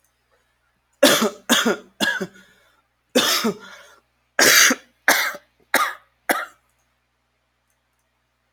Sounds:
Cough